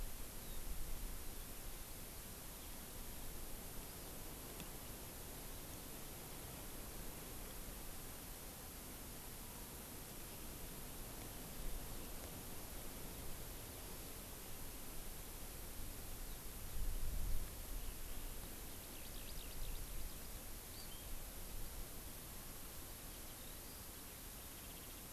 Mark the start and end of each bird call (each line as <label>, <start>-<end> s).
Eurasian Skylark (Alauda arvensis), 16.3-20.6 s
Hawaii Amakihi (Chlorodrepanis virens), 20.7-21.2 s
Eurasian Skylark (Alauda arvensis), 23.1-25.1 s